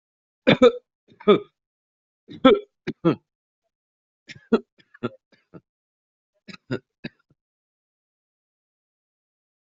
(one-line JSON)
{"expert_labels": [{"quality": "good", "cough_type": "dry", "dyspnea": false, "wheezing": false, "stridor": false, "choking": false, "congestion": false, "nothing": true, "diagnosis": "COVID-19", "severity": "mild"}]}